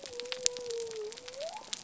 {"label": "biophony", "recorder": "SoundTrap 300"}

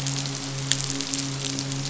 {"label": "biophony, midshipman", "recorder": "SoundTrap 500"}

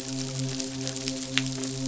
{"label": "biophony, midshipman", "recorder": "SoundTrap 500"}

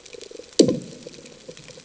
{"label": "anthrophony, bomb", "recorder": "HydroMoth"}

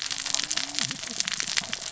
{"label": "biophony, cascading saw", "recorder": "SoundTrap 600 or HydroMoth"}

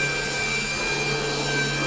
{"label": "anthrophony, boat engine", "recorder": "SoundTrap 500"}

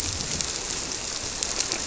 {"label": "biophony", "recorder": "SoundTrap 300"}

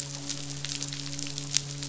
{"label": "biophony, midshipman", "recorder": "SoundTrap 500"}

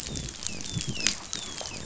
{"label": "biophony, dolphin", "recorder": "SoundTrap 500"}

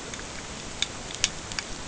{"label": "ambient", "recorder": "HydroMoth"}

